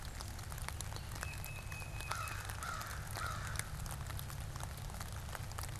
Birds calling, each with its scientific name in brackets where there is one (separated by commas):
Tufted Titmouse (Baeolophus bicolor), American Crow (Corvus brachyrhynchos)